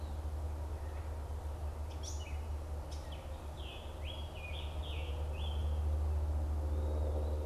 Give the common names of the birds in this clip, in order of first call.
Gray Catbird, Eastern Wood-Pewee, Scarlet Tanager